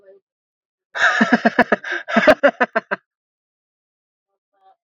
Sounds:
Laughter